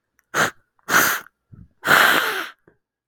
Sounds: Sniff